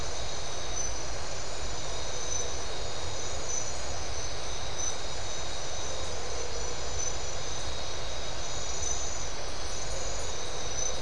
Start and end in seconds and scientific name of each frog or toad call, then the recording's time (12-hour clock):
none
12:15am